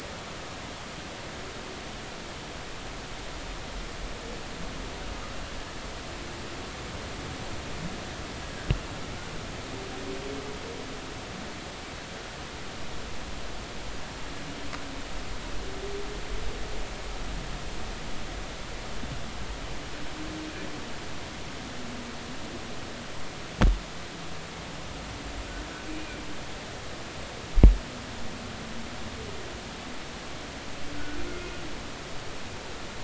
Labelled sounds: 31.2	31.5	humpback whale, 2.1 to 2.2 kHz

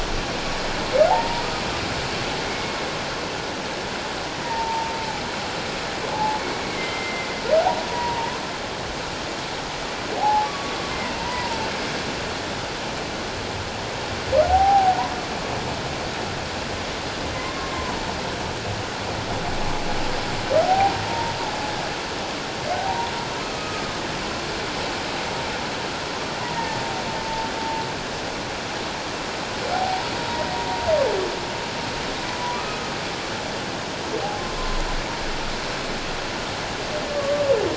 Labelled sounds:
1.1	1.4	humpback whale, 0.78 to 1.0 kHz
2.4	2.8	humpback whale, 2.1 to 2.3 kHz
4.3	4.9	humpback whale, 0.84 to 2.1 kHz
6.1	7.3	humpback whale, 0.78 to 2.2 kHz
7.9	8.4	humpback whale, 0.88 to 1.0 kHz
10.2	10.8	humpback whale, 0.78 to 1.2 kHz
11.2	11.6	humpback whale, 0.88 to 1.0 kHz
14.5	15.0	humpback whale, 0.78 to 0.88 kHz
17.3	18.1	humpback whale, 0.84 to 2.2 kHz
20.6	21.4	humpback whale, 0.78 to 0.97 kHz
23.5	23.8	humpback whale, 1.2 to 1.3 kHz
26.4	26.7	humpback whale, 0.88 to 1.0 kHz
29.7	30.5	humpback whale, 0.78 to 1.0 kHz
32.5	32.9	humpback whale, 1.1 to 1.3 kHz
37.1	37.4	humpback whale, 1.1 to 1.2 kHz

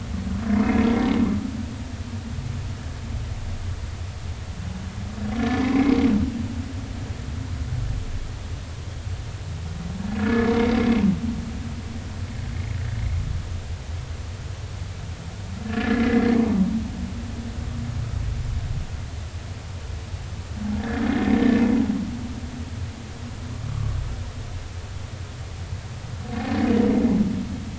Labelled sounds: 5.4	6.0	humpback whale, 1.7 to 2.4 kHz
10.2	10.5	humpback whale, 1.6 to 1.8 kHz
15.6	16.4	humpback whale, 1.6 to 2.2 kHz
21.2	21.6	humpback whale, 1.7 to 1.9 kHz
23.7	24.0	humpback whale, 1.1 to 1.3 kHz

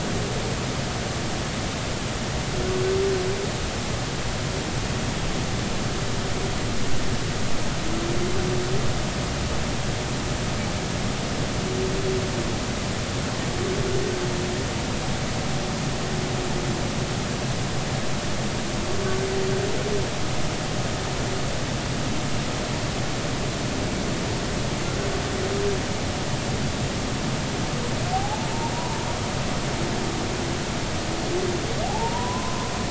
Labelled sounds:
28.1	28.5	humpback whale, 0.80 to 0.93 kHz
28.7	29.0	humpback whale, 0.86 to 1.0 kHz
31.8	32.7	humpback whale, 0.80 to 1.1 kHz

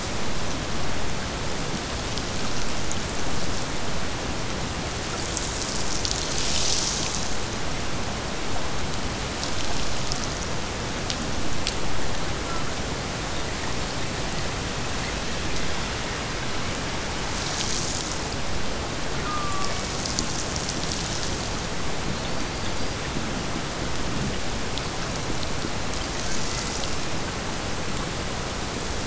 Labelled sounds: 19.2	20.2	killer whale, Bigg's (transient), Gulf of Alaska transient, 0.83 to 2.9 kHz

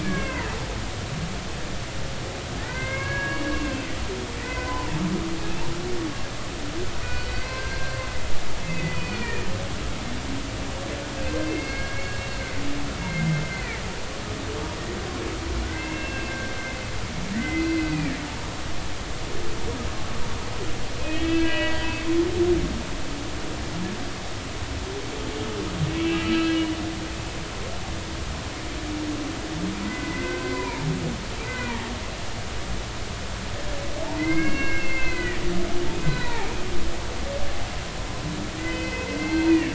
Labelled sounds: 0.0	0.5	humpback whale, 0.90 to 2.8 kHz
2.6	3.5	humpback whale, 1.0 to 2.9 kHz
4.4	5.0	humpback whale, 0.80 to 2.8 kHz
7.0	8.0	humpback whale, 1.4 to 4.7 kHz
8.6	9.5	humpback whale, 1.7 to 4.7 kHz
11.4	12.2	humpback whale, 1.6 to 4.4 kHz
13.0	13.8	humpback whale, 1.7 to 2.2 kHz
15.6	16.3	humpback whale, 1.4 to 2.8 kHz
17.3	18.2	humpback whale, 1.6 to 4.2 kHz
21.0	21.9	humpback whale, 1.6 to 4.6 kHz
25.9	26.6	humpback whale, 1.2 to 4.1 kHz
29.8	30.8	humpback whale, 1.5 to 2.5 kHz
31.5	31.9	humpback whale, 0.86 to 2.1 kHz
34.2	36.5	humpback whale, 0.80 to 4.1 kHz
38.6	39.7	humpback whale, 1.9 to 4.2 kHz

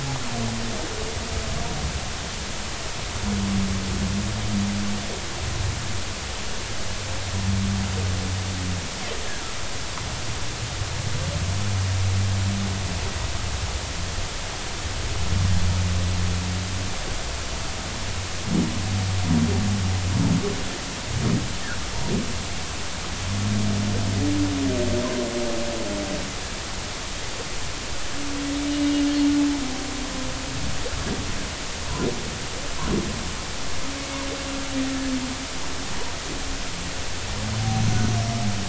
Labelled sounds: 28.7	29.1	humpback whale, 2.8 to 2.9 kHz

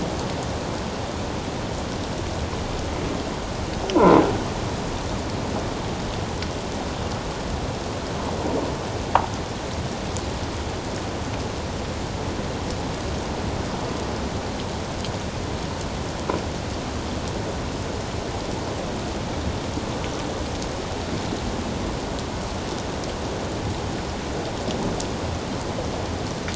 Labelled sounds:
3.9	4.2	croaking sound likely from a nearby submerged object, 0.88 to 1.1 kHz

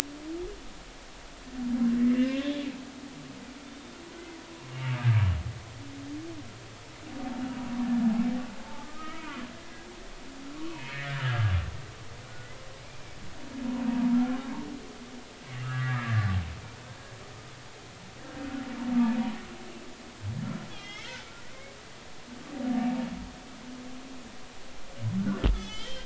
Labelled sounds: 2.1	2.7	humpback whale, 1.5 to 3.7 kHz
8.6	9.3	humpback whale, 0.80 to 2.3 kHz
10.5	11.5	humpback whale, 1.1 to 2.7 kHz
12.3	12.5	humpback whale, 1.4 to 1.5 kHz
12.8	13.2	humpback whale, 2.2 to 2.4 kHz
15.6	16.3	humpback whale, 1.1 to 2.0 kHz
20.7	21.3	humpback whale, 2.0 to 5.5 kHz
25.5	26.0	humpback whale, 1.7 to 6.1 kHz

